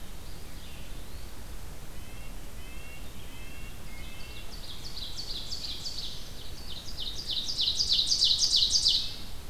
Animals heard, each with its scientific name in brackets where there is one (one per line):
Ovenbird (Seiurus aurocapilla)
Red-breasted Nuthatch (Sitta canadensis)
Eastern Wood-Pewee (Contopus virens)
Black-throated Green Warbler (Setophaga virens)